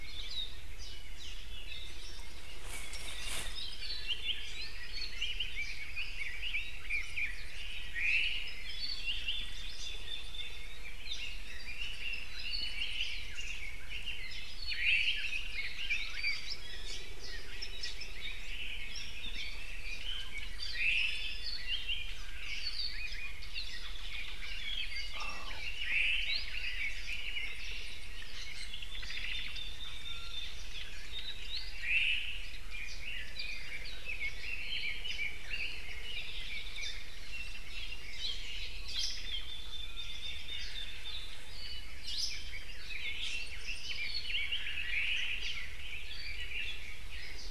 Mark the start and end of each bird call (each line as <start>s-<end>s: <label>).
0.0s-0.5s: Hawaii Akepa (Loxops coccineus)
3.5s-4.8s: Apapane (Himatione sanguinea)
4.9s-7.4s: Red-billed Leiothrix (Leiothrix lutea)
6.4s-6.9s: Iiwi (Drepanis coccinea)
7.4s-8.7s: Omao (Myadestes obscurus)
8.4s-11.3s: Apapane (Himatione sanguinea)
11.1s-14.6s: Red-billed Leiothrix (Leiothrix lutea)
14.6s-15.2s: Iiwi (Drepanis coccinea)
14.7s-15.4s: Omao (Myadestes obscurus)
15.0s-17.1s: Red-billed Leiothrix (Leiothrix lutea)
16.4s-16.7s: Apapane (Himatione sanguinea)
16.5s-17.0s: Iiwi (Drepanis coccinea)
17.7s-18.0s: Red-billed Leiothrix (Leiothrix lutea)
18.1s-19.1s: Omao (Myadestes obscurus)
19.1s-20.6s: Red-billed Leiothrix (Leiothrix lutea)
19.2s-19.6s: Apapane (Himatione sanguinea)
20.0s-21.6s: Iiwi (Drepanis coccinea)
20.7s-21.5s: Omao (Myadestes obscurus)
21.6s-23.7s: Apapane (Himatione sanguinea)
22.2s-22.9s: Omao (Myadestes obscurus)
23.8s-24.5s: Omao (Myadestes obscurus)
24.3s-27.6s: Red-billed Leiothrix (Leiothrix lutea)
24.7s-25.2s: Iiwi (Drepanis coccinea)
25.8s-26.5s: Omao (Myadestes obscurus)
26.2s-26.6s: Apapane (Himatione sanguinea)
27.4s-28.1s: Omao (Myadestes obscurus)
28.3s-30.8s: Red-billed Leiothrix (Leiothrix lutea)
28.9s-29.7s: Omao (Myadestes obscurus)
30.0s-30.5s: Iiwi (Drepanis coccinea)
31.5s-31.8s: Apapane (Himatione sanguinea)
31.7s-32.5s: Omao (Myadestes obscurus)
32.6s-37.1s: Red-billed Leiothrix (Leiothrix lutea)
36.0s-37.1s: Apapane (Himatione sanguinea)
38.2s-39.6s: Omao (Myadestes obscurus)
38.8s-39.4s: Hawaii Akepa (Loxops coccineus)
39.1s-41.4s: Red-billed Leiothrix (Leiothrix lutea)
42.0s-42.4s: Hawaii Akepa (Loxops coccineus)
42.2s-44.9s: Red-billed Leiothrix (Leiothrix lutea)
44.8s-45.6s: Omao (Myadestes obscurus)
45.3s-45.7s: Apapane (Himatione sanguinea)
45.5s-47.5s: Red-billed Leiothrix (Leiothrix lutea)